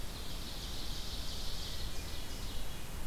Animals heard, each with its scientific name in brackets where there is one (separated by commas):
Ovenbird (Seiurus aurocapilla), Hermit Thrush (Catharus guttatus)